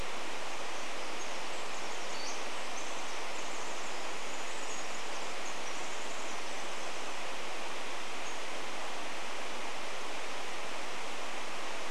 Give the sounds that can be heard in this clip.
Pacific Wren song, Pacific-slope Flycatcher call